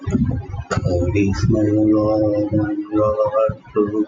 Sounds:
Sigh